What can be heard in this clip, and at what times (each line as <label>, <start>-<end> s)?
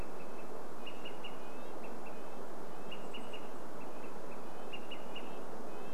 Olive-sided Flycatcher call, 0-6 s
Red-breasted Nuthatch song, 0-6 s
Chestnut-backed Chickadee call, 2-4 s